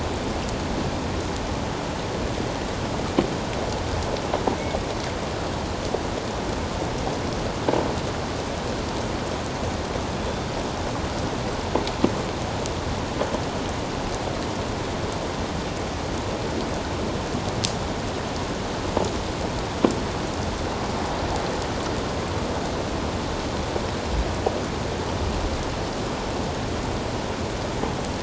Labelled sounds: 10.2	10.5	killer whale, offshore, 3.4 to 3.6 kHz

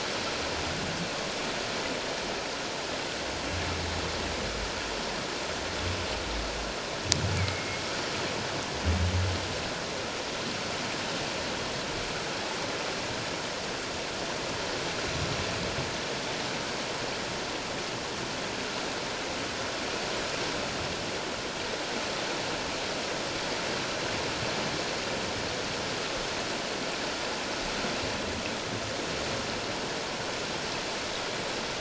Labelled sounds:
7.4	7.8	humpback whale, 2.1 to 2.4 kHz

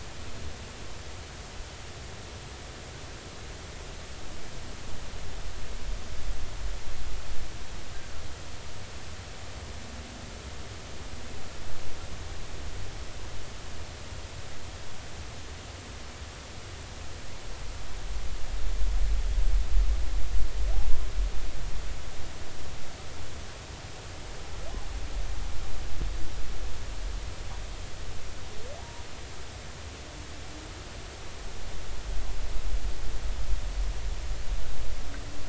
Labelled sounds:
28.8	29.0	humpback whale, 0.80 to 0.99 kHz

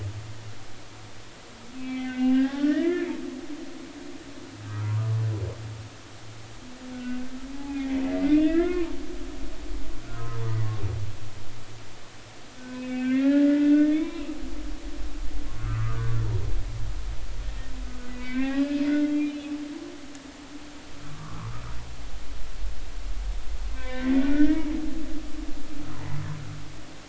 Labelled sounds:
1.8	3.1	humpback whale, 0.80 to 3.0 kHz
3.9	5.0	humpback whale, 1.1 to 2.5 kHz
7.9	8.9	humpback whale, 0.86 to 2.9 kHz
10.0	10.4	humpback whale, 0.99 to 1.7 kHz
12.6	14.3	humpback whale, 0.96 to 3.8 kHz
15.6	16.2	humpback whale, 0.99 to 1.6 kHz
18.1	19.6	humpback whale, 1.5 to 3.3 kHz
21.0	21.5	humpback whale, 0.96 to 1.5 kHz
23.7	24.7	humpback whale, 0.96 to 2.4 kHz

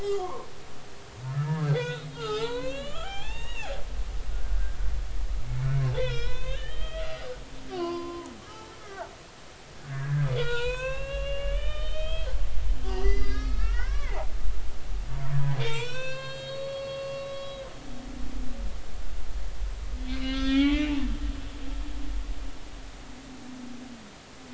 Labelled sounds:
0.0	4.8	humpback whale, 0.80 to 7.4 kHz
5.5	7.2	humpback whale, 0.96 to 5.6 kHz
7.7	9.1	humpback whale, 0.90 to 4.7 kHz
9.9	12.3	humpback whale, 0.90 to 4.5 kHz
12.9	14.6	humpback whale, 0.80 to 5.9 kHz
15.1	17.7	humpback whale, 0.90 to 7.5 kHz
20.1	21.0	humpback whale, 0.80 to 4.9 kHz

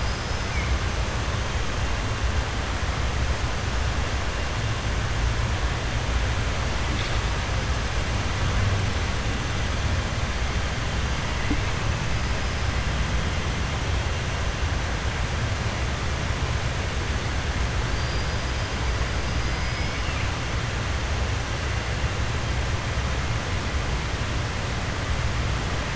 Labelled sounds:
17.9	18.4	killer whale, 3.8 to 5.3 kHz
19.3	20.3	killer whale, 2.1 to 5.3 kHz

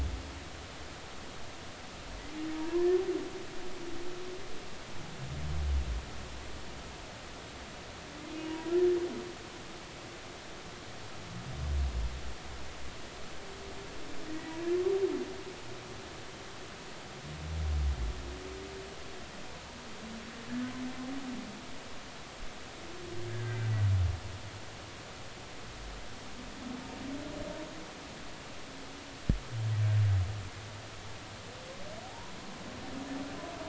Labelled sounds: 2.5	2.9	humpback whale, 0.90 to 1.1 kHz
8.4	8.7	humpback whale, 0.93 to 1.0 kHz
14.3	14.6	humpback whale, 1.8 to 2.0 kHz
23.3	23.6	humpback whale, 1.4 to 1.8 kHz
32.0	32.3	humpback whale, 0.80 to 1.1 kHz

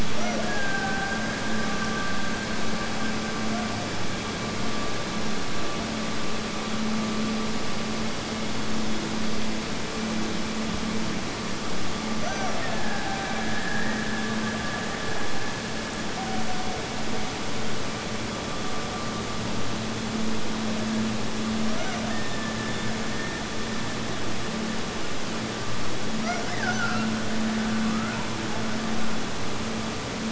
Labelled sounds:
0.1	4.2	killer whale, Bigg's (transient), Gulf of Alaska transient, 1.3 to 2.2 kHz
12.0	16.3	killer whale, Bigg's (transient), Gulf of Alaska transient, 1.3 to 6.1 kHz
21.7	25.2	killer whale, Bigg's (transient), Gulf of Alaska transient, 1.5 to 6.1 kHz
26.2	28.2	killer whale, Bigg's (transient), Gulf of Alaska transient, 1.1 to 2.4 kHz

